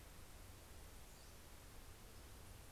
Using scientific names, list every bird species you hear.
Empidonax difficilis